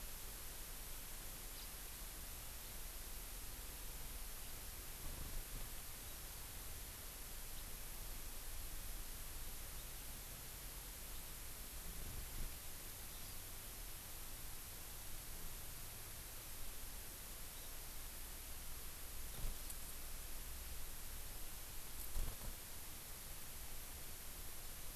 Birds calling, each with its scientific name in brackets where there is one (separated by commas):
Hawaii Amakihi (Chlorodrepanis virens)